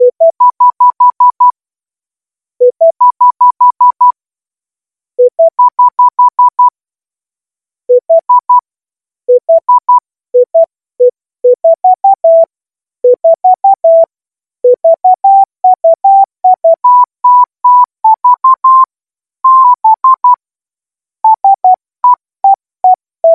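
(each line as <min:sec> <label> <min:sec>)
0:00.0 A mobile phone beeps repeatedly. 0:06.8
0:07.8 A "Bella Ciao" melody plays loudly and clearly on a mobile phone in a rhythmic and repeating pattern. 0:23.3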